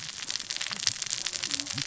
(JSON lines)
{"label": "biophony, cascading saw", "recorder": "SoundTrap 600 or HydroMoth"}